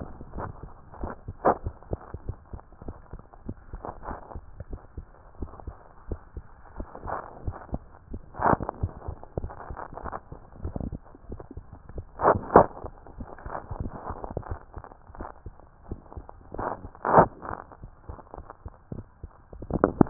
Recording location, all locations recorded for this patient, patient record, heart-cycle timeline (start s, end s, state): tricuspid valve (TV)
aortic valve (AV)+pulmonary valve (PV)+tricuspid valve (TV)+mitral valve (MV)
#Age: Child
#Sex: Female
#Height: 112.0 cm
#Weight: 23.5 kg
#Pregnancy status: False
#Murmur: Absent
#Murmur locations: nan
#Most audible location: nan
#Systolic murmur timing: nan
#Systolic murmur shape: nan
#Systolic murmur grading: nan
#Systolic murmur pitch: nan
#Systolic murmur quality: nan
#Diastolic murmur timing: nan
#Diastolic murmur shape: nan
#Diastolic murmur grading: nan
#Diastolic murmur pitch: nan
#Diastolic murmur quality: nan
#Outcome: Normal
#Campaign: 2015 screening campaign
0.00	2.62	unannotated
2.62	2.86	diastole
2.86	2.96	S1
2.96	3.10	systole
3.10	3.20	S2
3.20	3.46	diastole
3.46	3.58	S1
3.58	3.70	systole
3.70	3.82	S2
3.82	4.04	diastole
4.04	4.18	S1
4.18	4.32	systole
4.32	4.44	S2
4.44	4.68	diastole
4.68	4.80	S1
4.80	4.96	systole
4.96	5.08	S2
5.08	5.38	diastole
5.38	5.50	S1
5.50	5.64	systole
5.64	5.76	S2
5.76	6.06	diastole
6.06	6.20	S1
6.20	6.34	systole
6.34	6.48	S2
6.48	6.74	diastole
6.74	6.86	S1
6.86	7.02	systole
7.02	7.14	S2
7.14	7.40	diastole
7.40	7.56	S1
7.56	7.70	systole
7.70	7.82	S2
7.82	8.10	diastole
8.10	8.22	S1
8.22	8.40	systole
8.40	8.56	S2
8.56	8.76	diastole
8.76	8.90	S1
8.90	9.02	systole
9.02	9.14	S2
9.14	9.36	diastole
9.36	20.10	unannotated